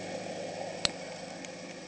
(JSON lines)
{"label": "anthrophony, boat engine", "recorder": "HydroMoth"}